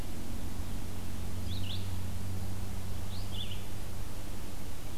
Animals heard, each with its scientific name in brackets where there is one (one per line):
Red-eyed Vireo (Vireo olivaceus)